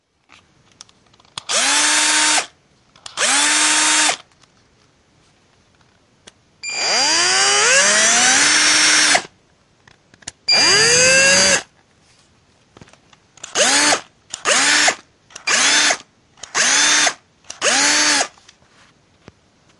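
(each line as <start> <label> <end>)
1.4 A drill is running continuously. 4.3
6.7 A drill is running continuously. 9.4
10.5 A drill is running continuously. 11.7
13.5 A drill is being used. 18.4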